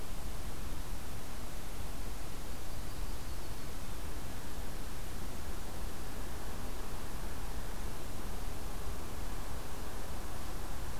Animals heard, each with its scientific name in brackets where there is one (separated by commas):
Yellow-rumped Warbler (Setophaga coronata)